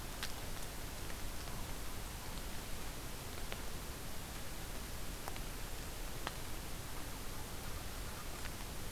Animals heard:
forest ambience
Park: Katahdin Woods and Waters National Monument